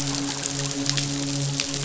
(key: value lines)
label: biophony, midshipman
recorder: SoundTrap 500